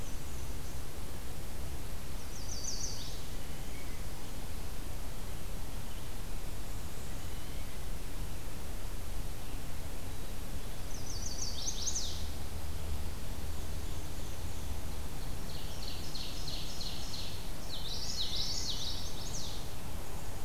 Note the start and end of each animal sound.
[0.00, 0.93] Black-and-white Warbler (Mniotilta varia)
[2.04, 3.35] Chestnut-sided Warbler (Setophaga pensylvanica)
[7.00, 7.92] Blue Jay (Cyanocitta cristata)
[10.78, 12.29] Chestnut-sided Warbler (Setophaga pensylvanica)
[13.31, 15.03] Black-and-white Warbler (Mniotilta varia)
[15.30, 17.53] Ovenbird (Seiurus aurocapilla)
[17.60, 19.16] Common Yellowthroat (Geothlypis trichas)
[18.44, 19.73] Chestnut-sided Warbler (Setophaga pensylvanica)

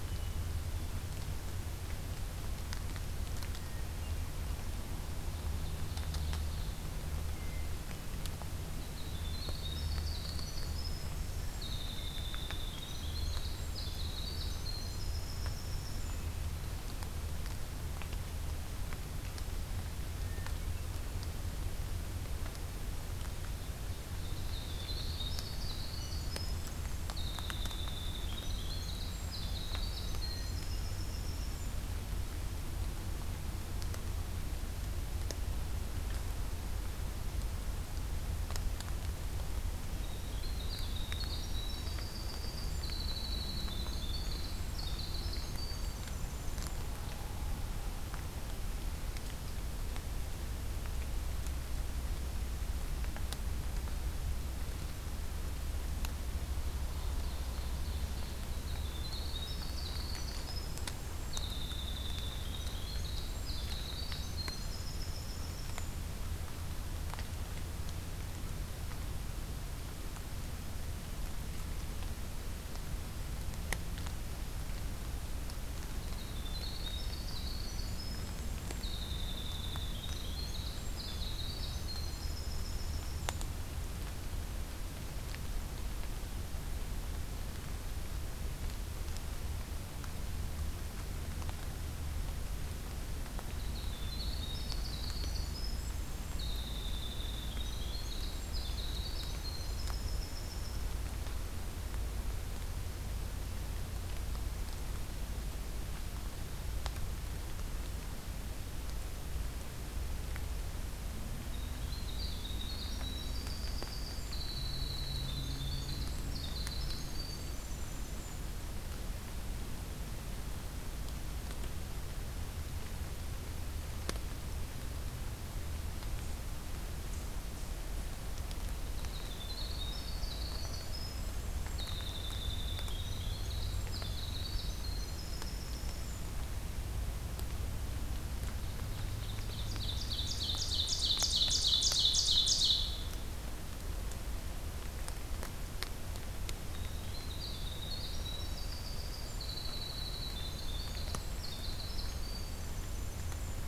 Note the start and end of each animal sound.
[0.00, 1.08] Hermit Thrush (Catharus guttatus)
[3.55, 4.32] Hermit Thrush (Catharus guttatus)
[5.14, 6.75] Ovenbird (Seiurus aurocapilla)
[7.29, 8.23] Hermit Thrush (Catharus guttatus)
[8.71, 16.31] Winter Wren (Troglodytes hiemalis)
[15.90, 16.75] Hermit Thrush (Catharus guttatus)
[20.12, 20.93] Hermit Thrush (Catharus guttatus)
[23.42, 24.98] Ovenbird (Seiurus aurocapilla)
[24.31, 31.73] Winter Wren (Troglodytes hiemalis)
[30.17, 31.25] Hermit Thrush (Catharus guttatus)
[39.91, 46.87] Winter Wren (Troglodytes hiemalis)
[56.44, 58.42] Ovenbird (Seiurus aurocapilla)
[58.48, 65.99] Winter Wren (Troglodytes hiemalis)
[75.91, 83.48] Winter Wren (Troglodytes hiemalis)
[93.33, 100.97] Winter Wren (Troglodytes hiemalis)
[111.49, 118.46] Winter Wren (Troglodytes hiemalis)
[128.79, 136.36] Winter Wren (Troglodytes hiemalis)
[138.53, 143.13] Ovenbird (Seiurus aurocapilla)
[146.66, 153.68] Winter Wren (Troglodytes hiemalis)

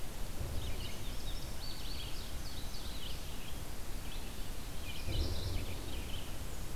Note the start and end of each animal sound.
[0.00, 6.75] Red-eyed Vireo (Vireo olivaceus)
[0.73, 3.15] Indigo Bunting (Passerina cyanea)
[4.76, 5.91] Mourning Warbler (Geothlypis philadelphia)
[6.15, 6.75] Black-and-white Warbler (Mniotilta varia)

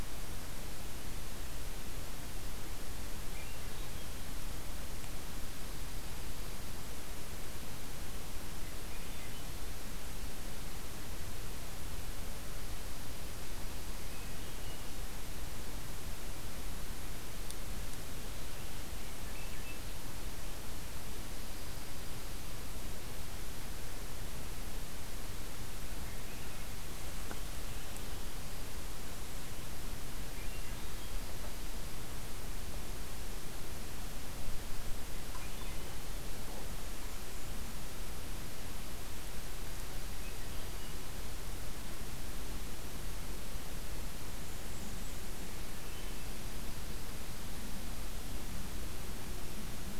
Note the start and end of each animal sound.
[3.08, 4.14] Swainson's Thrush (Catharus ustulatus)
[5.37, 6.91] Dark-eyed Junco (Junco hyemalis)
[8.41, 9.55] Swainson's Thrush (Catharus ustulatus)
[13.47, 15.00] Hermit Thrush (Catharus guttatus)
[18.90, 19.99] Swainson's Thrush (Catharus ustulatus)
[21.27, 22.76] Dark-eyed Junco (Junco hyemalis)
[25.64, 26.68] Swainson's Thrush (Catharus ustulatus)
[30.11, 30.93] Swainson's Thrush (Catharus ustulatus)
[30.80, 32.25] Dark-eyed Junco (Junco hyemalis)
[35.12, 36.14] Swainson's Thrush (Catharus ustulatus)
[36.55, 37.88] Black-and-white Warbler (Mniotilta varia)
[39.12, 40.96] Dark-eyed Junco (Junco hyemalis)
[40.02, 41.04] Swainson's Thrush (Catharus ustulatus)
[43.97, 45.35] Blackburnian Warbler (Setophaga fusca)
[45.58, 46.44] Hermit Thrush (Catharus guttatus)

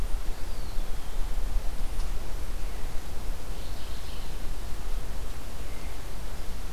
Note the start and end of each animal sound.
[0.04, 1.37] Eastern Wood-Pewee (Contopus virens)
[3.38, 4.35] Mourning Warbler (Geothlypis philadelphia)

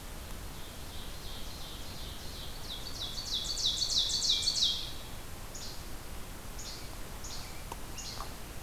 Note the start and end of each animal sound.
[0.52, 5.34] Ovenbird (Seiurus aurocapilla)
[5.38, 5.76] Least Flycatcher (Empidonax minimus)
[6.50, 6.89] Least Flycatcher (Empidonax minimus)
[7.16, 7.56] Least Flycatcher (Empidonax minimus)
[7.81, 8.21] Least Flycatcher (Empidonax minimus)

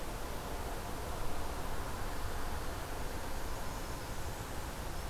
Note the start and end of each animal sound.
[2.72, 4.53] Blackburnian Warbler (Setophaga fusca)

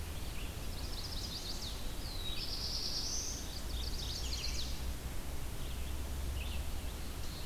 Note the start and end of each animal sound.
[0.00, 7.45] Red-eyed Vireo (Vireo olivaceus)
[0.38, 1.79] Chestnut-sided Warbler (Setophaga pensylvanica)
[1.84, 3.60] Black-throated Blue Warbler (Setophaga caerulescens)
[3.30, 4.53] Mourning Warbler (Geothlypis philadelphia)
[3.56, 4.75] Chestnut-sided Warbler (Setophaga pensylvanica)
[6.82, 7.45] Black-throated Blue Warbler (Setophaga caerulescens)

